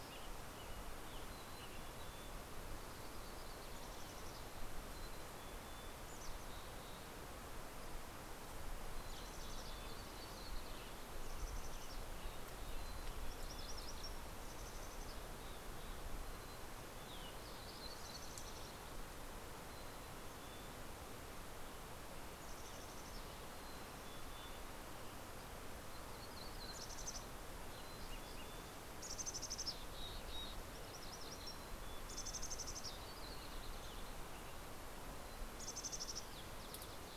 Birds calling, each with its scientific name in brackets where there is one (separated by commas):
Yellow-rumped Warbler (Setophaga coronata), Mountain Chickadee (Poecile gambeli), MacGillivray's Warbler (Geothlypis tolmiei), Dark-eyed Junco (Junco hyemalis), Western Tanager (Piranga ludoviciana)